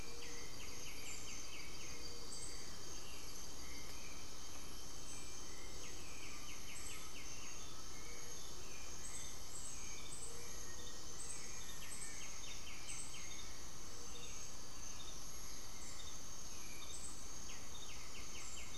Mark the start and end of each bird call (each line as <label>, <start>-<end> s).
Gray-fronted Dove (Leptotila rufaxilla), 0.0-18.8 s
White-winged Becard (Pachyramphus polychopterus), 0.0-18.8 s
Undulated Tinamou (Crypturellus undulatus), 5.6-8.8 s
Black-faced Antthrush (Formicarius analis), 10.2-12.8 s